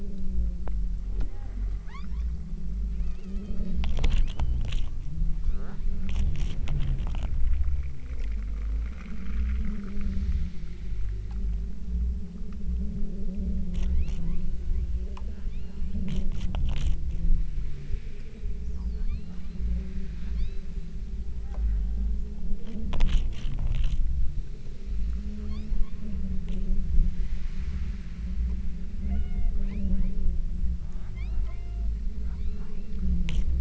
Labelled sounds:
1.9	2.5	killer whale, southern Alaska resident, 0.62 to 7.5 kHz
3.0	3.8	killer whale, southern Alaska resident, 0.84 to 7.0 kHz
4.3	4.7	killer whale, southern Alaska resident, 2.7 to 4.8 kHz
5.3	6.0	killer whale, southern Alaska resident, 1.9 to 6.3 kHz
13.9	15.1	killer whale, southern Alaska resident, 0.66 to 4.5 kHz
15.4	16.1	killer whale, southern Alaska resident, 0.79 to 6.0 kHz
19.0	19.9	killer whale, southern Alaska resident, 1.2 to 5.0 kHz
20.3	20.9	killer whale, southern Alaska resident, 2.0 to 5.2 kHz
21.5	22.4	killer whale, southern Alaska resident, 0.57 to 3.8 kHz
25.6	26.3	killer whale, southern Alaska resident, 0.75 to 8.0 kHz
29.1	30.4	killer whale, southern Alaska resident, 0.52 to 4.6 kHz
30.9	33.3	killer whale, southern Alaska resident, 0.52 to 5.5 kHz

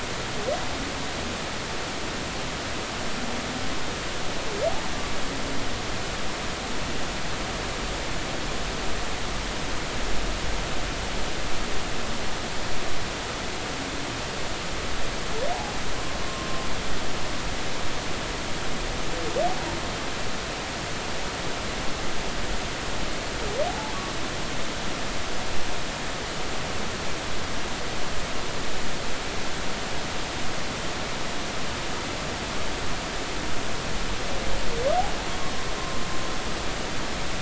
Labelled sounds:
23.7	23.9	humpback whale, 0.80 to 0.93 kHz

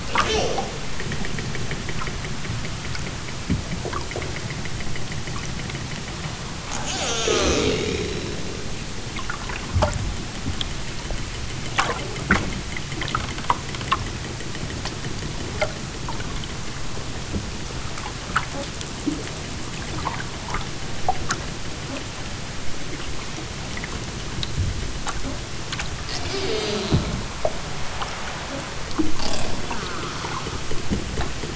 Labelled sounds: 0.0	0.9	killer whale, southern Alaska resident, 0.60 to 8.0 kHz
6.7	8.7	killer whale, southern Alaska resident, 0.37 to 8.0 kHz
26.0	27.3	killer whale, southern Alaska resident, 1.3 to 7.5 kHz
29.1	30.8	killer whale, southern Alaska resident, 0.37 to 6.4 kHz

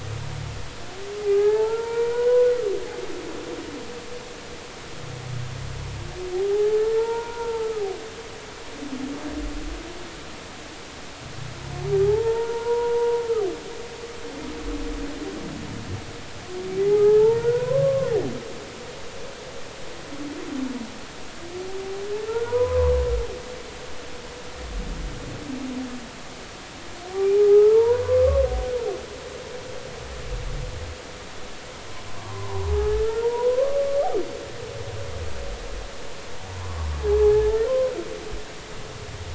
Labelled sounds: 1.3	2.5	humpback whale, 0.80 to 2.4 kHz
6.5	7.8	humpback whale, 0.80 to 1.9 kHz
12.0	13.2	humpback whale, 0.80 to 1.1 kHz
16.8	18.1	humpback whale, 0.80 to 2.2 kHz
22.3	22.9	humpback whale, 0.90 to 1.5 kHz
27.5	28.3	humpback whale, 0.80 to 1.4 kHz
32.2	33.8	humpback whale, 0.80 to 1.3 kHz
37.2	37.9	humpback whale, 0.80 to 1.9 kHz

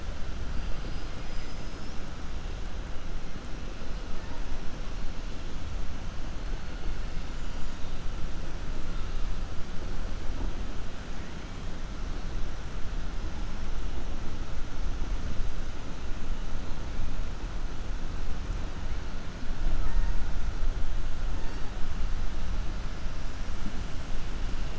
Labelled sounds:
19.7	20.1	killer whale, 0.63 to 2.2 kHz

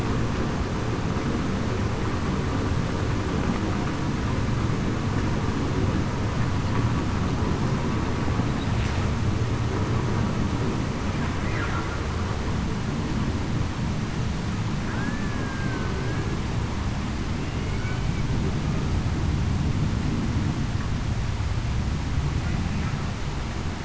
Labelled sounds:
14.9	15.9	killer whale, Bigg's (transient), 1.4 to 1.8 kHz
17.7	18.0	killer whale, Bigg's (transient), 1.4 to 1.5 kHz

